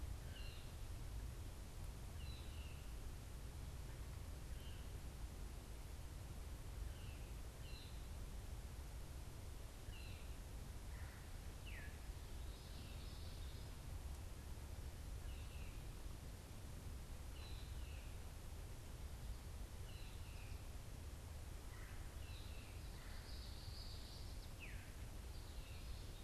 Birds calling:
Common Yellowthroat (Geothlypis trichas), Veery (Catharus fuscescens), Red-bellied Woodpecker (Melanerpes carolinus)

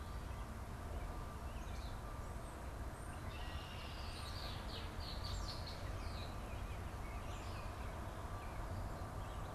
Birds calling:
Red-winged Blackbird (Agelaius phoeniceus)

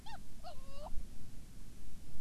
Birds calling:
Hawaiian Petrel (Pterodroma sandwichensis)

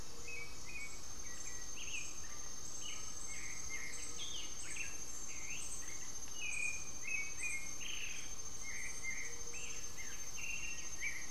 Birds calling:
Gray-fronted Dove (Leptotila rufaxilla), Black-faced Antthrush (Formicarius analis), White-winged Becard (Pachyramphus polychopterus)

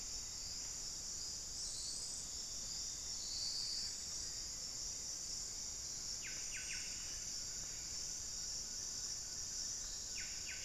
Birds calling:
Buff-breasted Wren (Cantorchilus leucotis), Black-fronted Nunbird (Monasa nigrifrons)

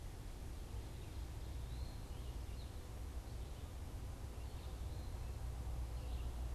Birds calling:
Eastern Wood-Pewee (Contopus virens)

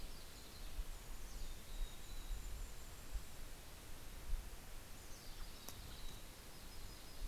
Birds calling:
Mountain Chickadee (Poecile gambeli), American Robin (Turdus migratorius), Yellow-rumped Warbler (Setophaga coronata), Golden-crowned Kinglet (Regulus satrapa)

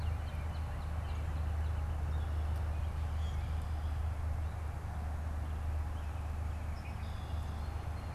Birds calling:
Red-winged Blackbird (Agelaius phoeniceus), Northern Cardinal (Cardinalis cardinalis)

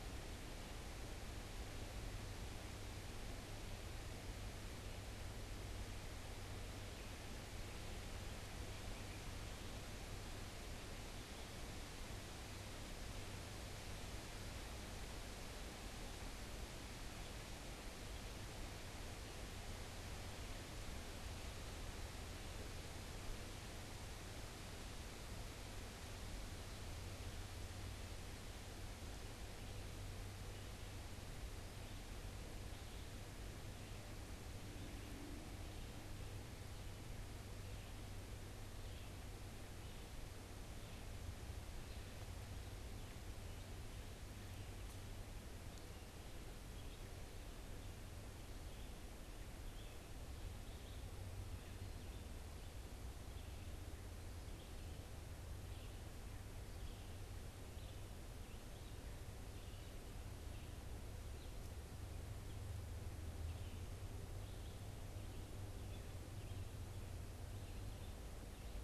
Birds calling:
Red-eyed Vireo (Vireo olivaceus)

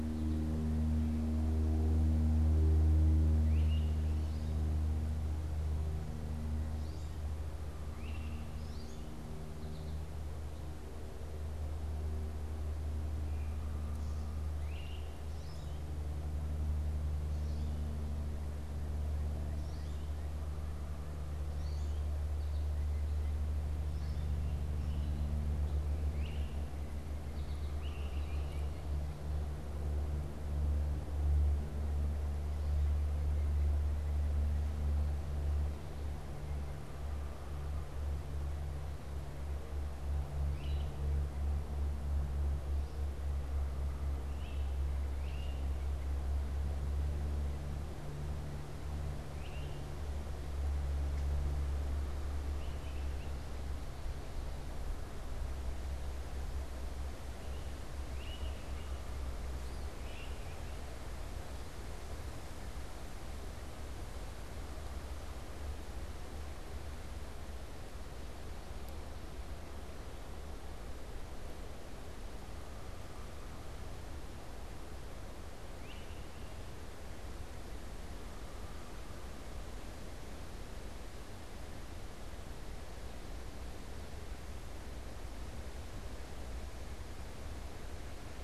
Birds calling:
Great Crested Flycatcher (Myiarchus crinitus), American Goldfinch (Spinus tristis)

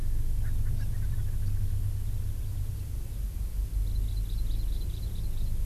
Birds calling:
Hawaii Amakihi (Chlorodrepanis virens), Erckel's Francolin (Pternistis erckelii)

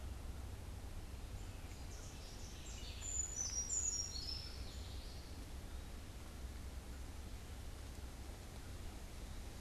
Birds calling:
Eastern Wood-Pewee (Contopus virens), Brown Creeper (Certhia americana)

